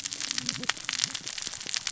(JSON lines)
{"label": "biophony, cascading saw", "recorder": "SoundTrap 600 or HydroMoth"}